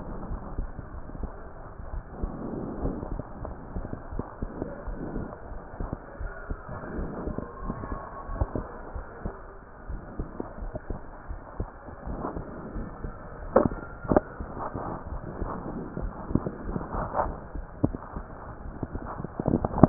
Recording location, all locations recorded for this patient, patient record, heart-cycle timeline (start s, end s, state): pulmonary valve (PV)
aortic valve (AV)+pulmonary valve (PV)+tricuspid valve (TV)
#Age: Child
#Sex: Male
#Height: 138.0 cm
#Weight: 44.8 kg
#Pregnancy status: False
#Murmur: Absent
#Murmur locations: nan
#Most audible location: nan
#Systolic murmur timing: nan
#Systolic murmur shape: nan
#Systolic murmur grading: nan
#Systolic murmur pitch: nan
#Systolic murmur quality: nan
#Diastolic murmur timing: nan
#Diastolic murmur shape: nan
#Diastolic murmur grading: nan
#Diastolic murmur pitch: nan
#Diastolic murmur quality: nan
#Outcome: Normal
#Campaign: 2015 screening campaign
0.00	5.99	unannotated
5.99	6.20	diastole
6.20	6.32	S1
6.32	6.46	systole
6.46	6.60	S2
6.60	6.92	diastole
6.92	7.10	S1
7.10	7.24	systole
7.24	7.36	S2
7.36	7.62	diastole
7.62	7.76	S1
7.76	7.88	systole
7.88	8.00	S2
8.00	8.28	diastole
8.28	8.46	S1
8.46	8.56	systole
8.56	8.66	S2
8.66	8.94	diastole
8.94	9.04	S1
9.04	9.24	systole
9.24	9.34	S2
9.34	9.85	diastole
9.85	10.00	S1
10.00	10.17	systole
10.17	10.30	S2
10.30	10.57	diastole
10.57	10.72	S1
10.72	10.87	systole
10.87	11.00	S2
11.00	11.26	diastole
11.26	11.40	S1
11.40	11.55	systole
11.55	11.70	S2
11.70	12.02	diastole
12.02	12.18	S1
12.18	12.32	systole
12.32	12.46	S2
12.46	12.73	diastole
12.73	12.88	S1
12.88	12.99	systole
12.99	13.16	S2
13.16	13.40	diastole
13.40	19.89	unannotated